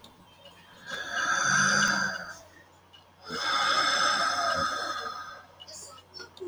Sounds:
Sigh